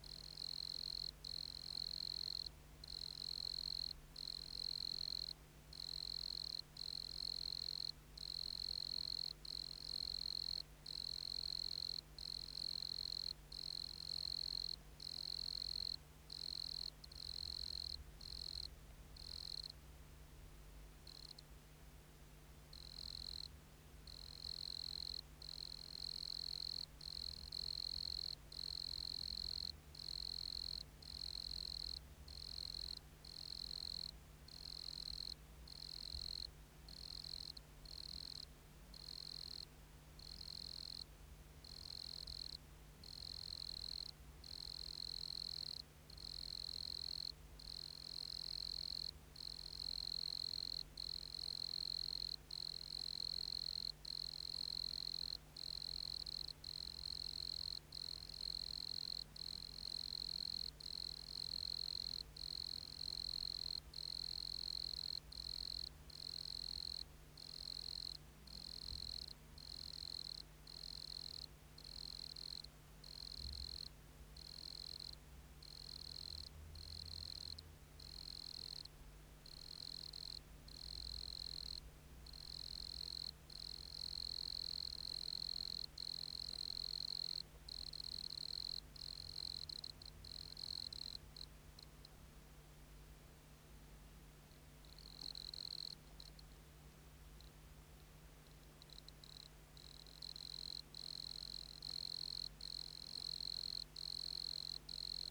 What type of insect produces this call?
orthopteran